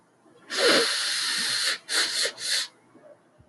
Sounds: Sniff